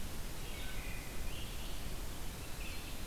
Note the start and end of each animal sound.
[0.00, 3.06] Red-eyed Vireo (Vireo olivaceus)
[0.41, 1.11] Wood Thrush (Hylocichla mustelina)

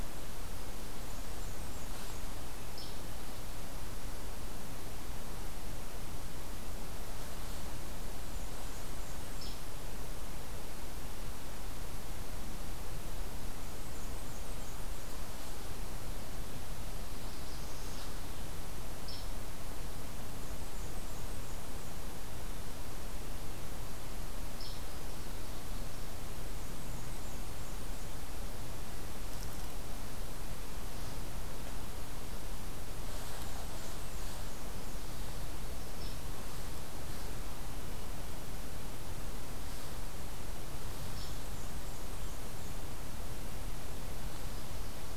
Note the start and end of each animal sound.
[0.96, 2.23] Blackburnian Warbler (Setophaga fusca)
[2.65, 3.01] Hairy Woodpecker (Dryobates villosus)
[8.16, 9.56] Blackburnian Warbler (Setophaga fusca)
[9.36, 9.69] Hairy Woodpecker (Dryobates villosus)
[13.43, 15.07] Blackburnian Warbler (Setophaga fusca)
[16.68, 18.10] Northern Parula (Setophaga americana)
[18.91, 19.33] Hairy Woodpecker (Dryobates villosus)
[20.03, 21.83] Blackburnian Warbler (Setophaga fusca)
[24.45, 24.83] Hairy Woodpecker (Dryobates villosus)
[26.38, 28.18] Blackburnian Warbler (Setophaga fusca)
[33.16, 34.36] Blackburnian Warbler (Setophaga fusca)
[35.93, 36.31] Hairy Woodpecker (Dryobates villosus)
[41.01, 42.79] Blackburnian Warbler (Setophaga fusca)
[41.07, 41.48] Hairy Woodpecker (Dryobates villosus)

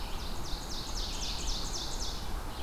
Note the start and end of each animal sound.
[0.00, 2.35] Ovenbird (Seiurus aurocapilla)
[0.00, 2.62] Red-eyed Vireo (Vireo olivaceus)

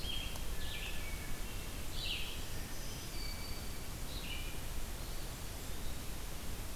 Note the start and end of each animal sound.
[0.00, 6.76] Blue-headed Vireo (Vireo solitarius)
[0.50, 1.89] Hermit Thrush (Catharus guttatus)
[2.34, 3.79] Hermit Thrush (Catharus guttatus)
[2.39, 3.96] Black-throated Green Warbler (Setophaga virens)
[4.85, 6.21] Eastern Wood-Pewee (Contopus virens)

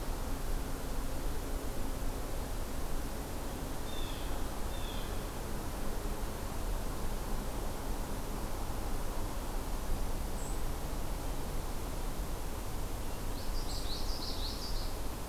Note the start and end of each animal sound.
[3.78, 5.19] Blue Jay (Cyanocitta cristata)
[13.29, 15.06] Common Yellowthroat (Geothlypis trichas)

